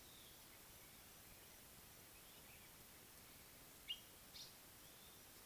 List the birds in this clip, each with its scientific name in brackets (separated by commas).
African Paradise-Flycatcher (Terpsiphone viridis), Common Bulbul (Pycnonotus barbatus)